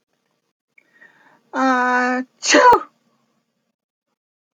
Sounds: Sneeze